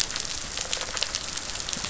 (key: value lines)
label: biophony
recorder: SoundTrap 500